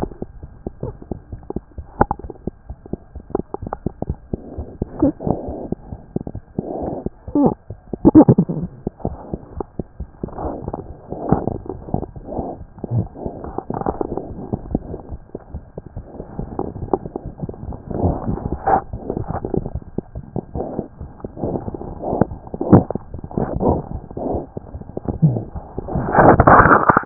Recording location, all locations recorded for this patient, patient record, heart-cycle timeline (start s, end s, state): mitral valve (MV)
aortic valve (AV)+mitral valve (MV)
#Age: Infant
#Sex: Male
#Height: 70.0 cm
#Weight: 9.7 kg
#Pregnancy status: False
#Murmur: Absent
#Murmur locations: nan
#Most audible location: nan
#Systolic murmur timing: nan
#Systolic murmur shape: nan
#Systolic murmur grading: nan
#Systolic murmur pitch: nan
#Systolic murmur quality: nan
#Diastolic murmur timing: nan
#Diastolic murmur shape: nan
#Diastolic murmur grading: nan
#Diastolic murmur pitch: nan
#Diastolic murmur quality: nan
#Outcome: Abnormal
#Campaign: 2015 screening campaign
0.00	0.40	unannotated
0.40	0.48	S1
0.48	0.64	systole
0.64	0.71	S2
0.71	0.87	diastole
0.87	0.93	S1
0.93	1.08	systole
1.08	1.17	S2
1.17	1.30	diastole
1.30	1.38	S1
1.38	1.54	systole
1.54	1.61	S2
1.61	1.77	diastole
1.77	1.83	S1
1.83	1.98	systole
1.98	2.07	S2
2.07	2.22	diastole
2.22	2.29	S1
2.29	2.45	systole
2.45	2.53	S2
2.53	2.68	diastole
2.68	2.74	S1
2.74	2.91	systole
2.91	2.97	S2
2.97	3.14	diastole
3.14	3.21	S1
3.21	3.38	systole
3.38	3.43	S2
3.43	3.61	diastole
3.61	3.67	S1
3.67	3.84	systole
3.84	3.90	S2
3.90	4.08	diastole
4.08	4.17	S1
4.17	4.31	systole
4.31	4.38	S2
4.38	4.57	diastole
4.57	4.64	S1
4.64	4.79	systole
4.79	4.86	S2
4.86	27.06	unannotated